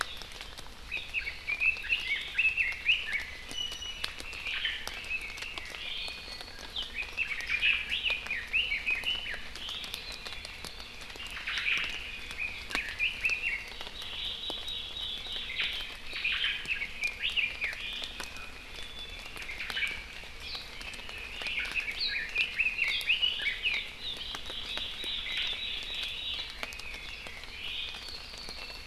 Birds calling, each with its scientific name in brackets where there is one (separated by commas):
Iiwi (Drepanis coccinea), Red-billed Leiothrix (Leiothrix lutea), Omao (Myadestes obscurus)